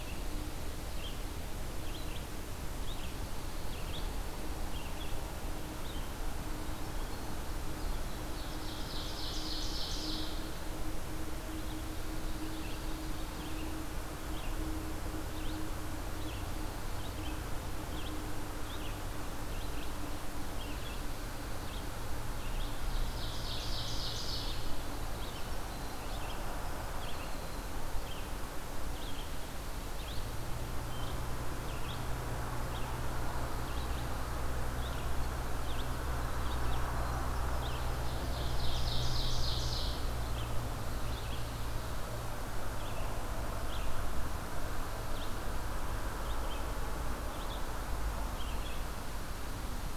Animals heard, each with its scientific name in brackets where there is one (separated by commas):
Red-eyed Vireo (Vireo olivaceus), Ovenbird (Seiurus aurocapilla)